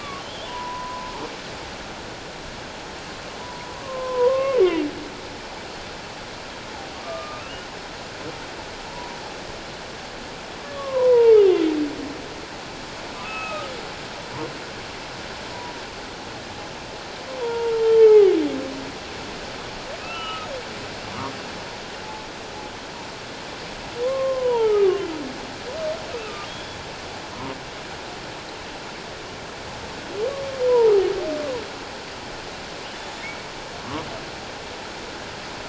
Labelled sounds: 0.0	1.1	humpback whale, 0.91 to 3.5 kHz
3.4	4.6	humpback whale, 0.91 to 1.2 kHz
7.0	7.7	humpback whale, 1.1 to 3.0 kHz
8.9	9.2	humpback whale, 0.84 to 1.0 kHz
10.7	11.4	humpback whale, 0.88 to 1.2 kHz
13.2	13.7	humpback whale, 0.97 to 2.7 kHz
17.4	18.3	humpback whale, 0.78 to 3.2 kHz
20.0	20.5	humpback whale, 1.2 to 3.0 kHz
24.0	25.0	humpback whale, 0.84 to 3.4 kHz
26.1	26.8	humpback whale, 1.2 to 3.5 kHz
30.7	30.9	humpback whale, 0.81 to 1.0 kHz

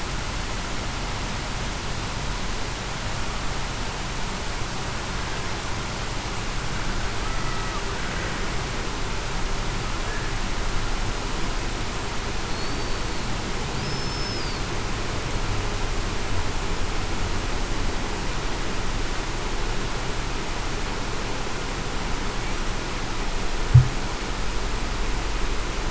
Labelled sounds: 12.5	13.0	killer whale, Bigg's (transient), 4.3 to 4.7 kHz
13.8	14.4	killer whale, Bigg's (transient), 5.1 to 5.3 kHz

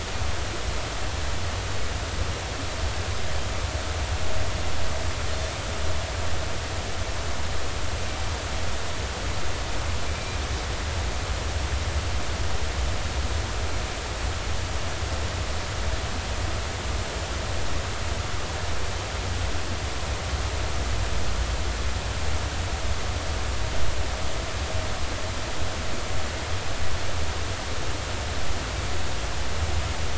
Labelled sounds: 10.1	10.4	Pacific white-sided dolphin, 2.3 to 2.5 kHz

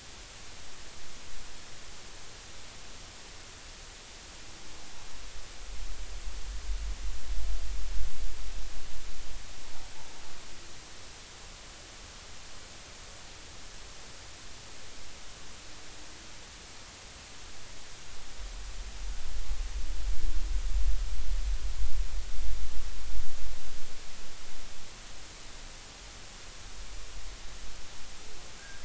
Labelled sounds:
28.6	28.8	humpback whale, 1.5 to 1.8 kHz

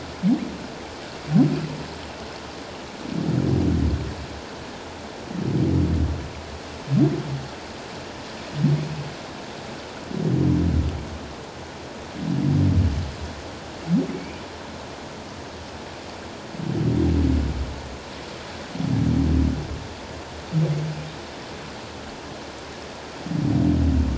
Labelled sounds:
14.1	14.4	humpback whale, 2.2 to 2.5 kHz

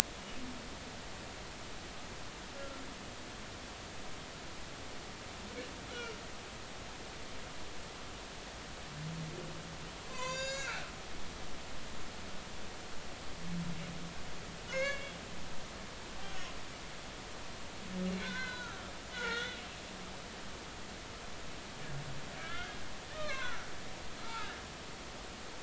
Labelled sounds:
2.6	2.8	humpback whale, 1.3 to 1.4 kHz
5.9	6.2	humpback whale, 2.7 to 3.0 kHz
10.1	10.9	humpback whale, 0.93 to 7.3 kHz
14.7	15.1	humpback whale, 0.99 to 2.9 kHz
18.2	18.8	humpback whale, 1.2 to 4.2 kHz
19.1	19.6	humpback whale, 1.3 to 4.0 kHz
22.4	23.7	humpback whale, 0.96 to 3.3 kHz
24.2	24.5	humpback whale, 1.2 to 1.5 kHz

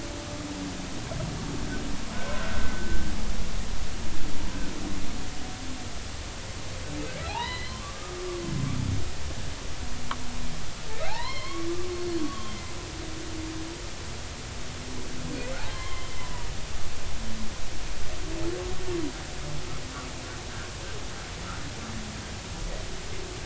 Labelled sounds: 2.4	3.1	humpback whale, 1.3 to 1.6 kHz
7.3	8.2	humpback whale, 0.80 to 4.3 kHz
11.1	12.6	humpback whale, 0.80 to 4.5 kHz
15.7	16.5	humpback whale, 0.90 to 3.3 kHz

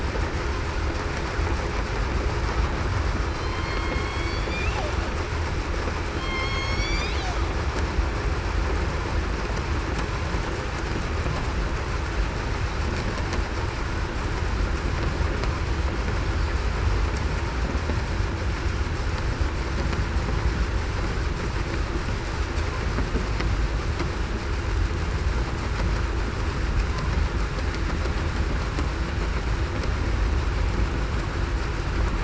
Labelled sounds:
3.3	4.5	killer whale, southern resident, 2.1 to 4.6 kHz
6.1	7.1	killer whale, southern resident, 1.0 to 6.7 kHz

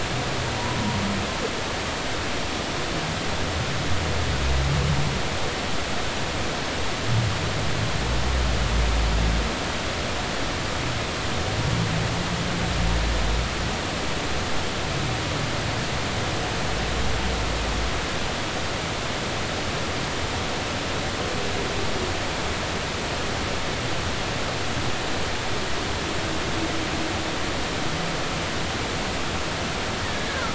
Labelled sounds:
30.0	30.5	humpback whale, 1.2 to 2.0 kHz

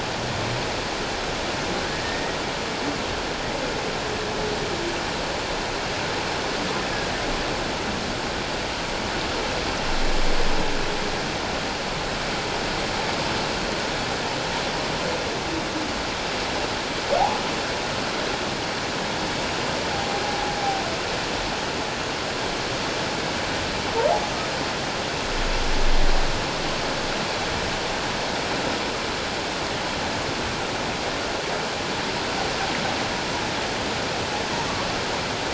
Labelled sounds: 2.0	2.4	humpback whale, 1.8 to 1.9 kHz
20.2	20.5	humpback whale, 0.78 to 0.88 kHz

